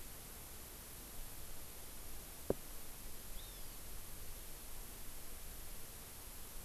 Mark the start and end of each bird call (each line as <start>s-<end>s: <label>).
3.4s-3.8s: Hawaii Amakihi (Chlorodrepanis virens)